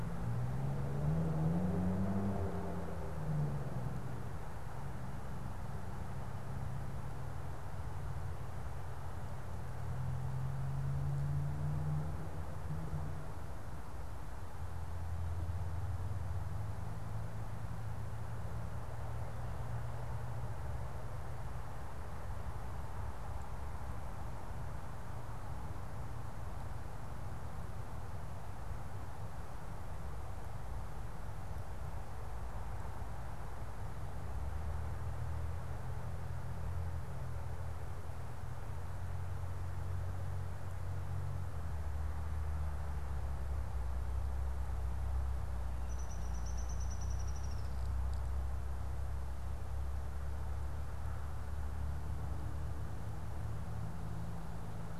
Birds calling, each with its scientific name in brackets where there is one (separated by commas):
Downy Woodpecker (Dryobates pubescens)